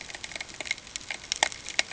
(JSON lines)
{"label": "ambient", "recorder": "HydroMoth"}